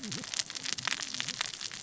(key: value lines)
label: biophony, cascading saw
recorder: SoundTrap 600 or HydroMoth